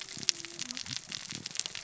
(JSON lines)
{"label": "biophony, cascading saw", "recorder": "SoundTrap 600 or HydroMoth"}